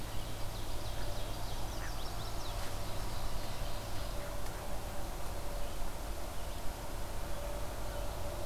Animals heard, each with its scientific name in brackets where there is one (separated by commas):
Ovenbird (Seiurus aurocapilla), Chestnut-sided Warbler (Setophaga pensylvanica)